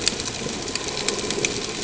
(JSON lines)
{"label": "ambient", "recorder": "HydroMoth"}